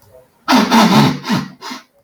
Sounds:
Sniff